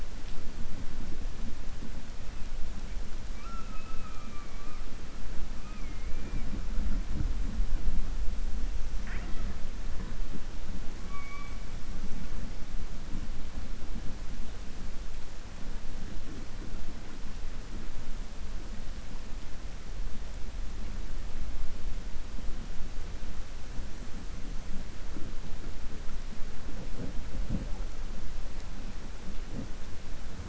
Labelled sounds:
3.3	4.8	killer whale, southern resident, 1.1 to 2.7 kHz

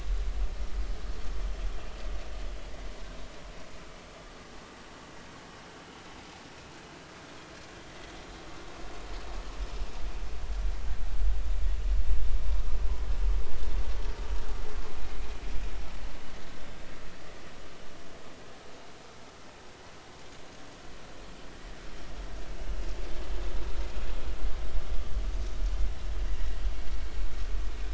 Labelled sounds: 1.1	1.3	vessel noise, 5.3 to 5.6 kHz

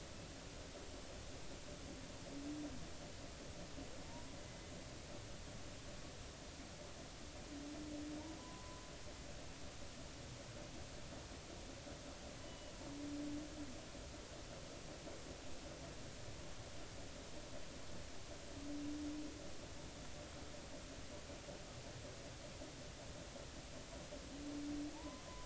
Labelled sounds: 4.0	4.7	humpback whale, 0.86 to 2.1 kHz
8.4	8.8	humpback whale, 0.96 to 1.1 kHz
13.5	13.7	humpback whale, 2.9 to 3.0 kHz
24.9	25.2	humpback whale, 0.83 to 1.1 kHz

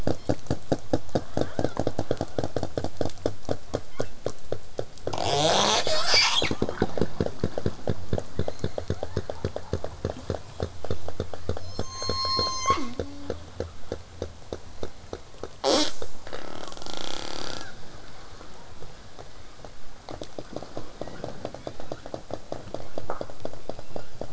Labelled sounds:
0.1	0.4	killer whale, southern resident, 2.3 to 5.8 kHz
3.8	4.2	killer whale, southern resident, 0.80 to 4.4 kHz
8.4	9.3	killer whale, southern resident, 0.58 to 6.9 kHz
11.6	13.5	killer whale, southern resident, J pod, call S03, 0.11 to 8.0 kHz
15.6	15.9	killer whale, southern resident, J pod, call S05, 0.18 to 8.0 kHz
17.5	17.8	killer whale, southern resident, 0.22 to 2.1 kHz
21.0	21.3	killer whale, southern resident, 1.0 to 3.5 kHz
21.5	22.2	killer whale, southern resident, L pod, call S19, 0.90 to 5.0 kHz
23.6	24.2	killer whale, southern resident, L pod, call S19, 1.1 to 5.2 kHz

